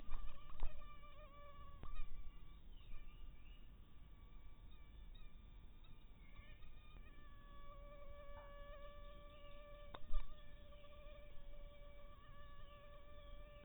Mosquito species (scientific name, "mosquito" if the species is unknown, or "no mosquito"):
mosquito